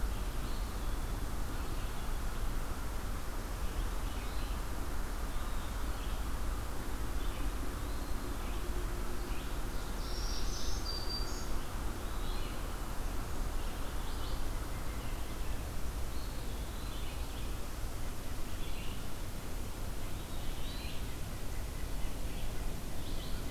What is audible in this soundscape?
Red-eyed Vireo, Eastern Wood-Pewee, Ovenbird, Black-throated Green Warbler, White-breasted Nuthatch